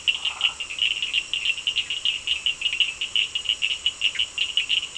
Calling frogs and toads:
Boana prasina (Hylidae), Sphaenorhynchus surdus (Hylidae), Boana bischoffi (Hylidae)
8:15pm

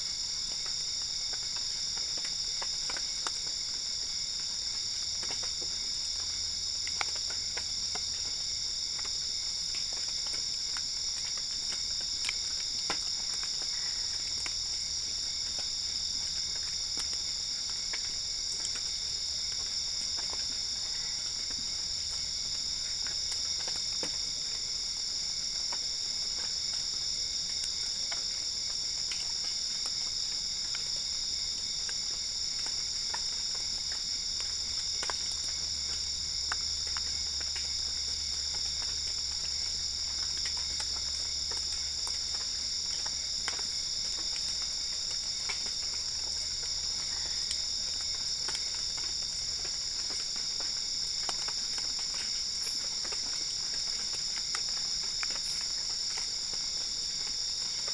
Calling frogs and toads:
Boana albopunctata (Hylidae)
2:45am

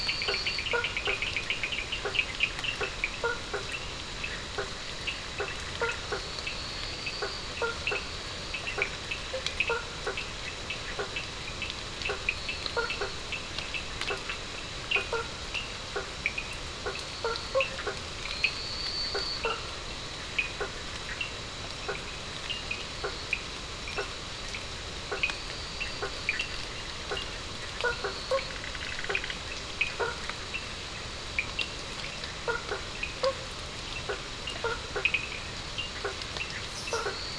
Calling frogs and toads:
Elachistocleis bicolor (Microhylidae), Boana faber (Hylidae), Sphaenorhynchus surdus (Hylidae), Boana bischoffi (Hylidae)
1:00am

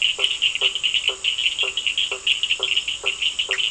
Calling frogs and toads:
Boana faber (Hylidae), Sphaenorhynchus surdus (Hylidae), Boana bischoffi (Hylidae)
8:15pm

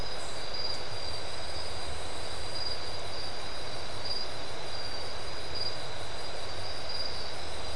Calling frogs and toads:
none
4:15am

